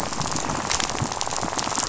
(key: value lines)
label: biophony, rattle
recorder: SoundTrap 500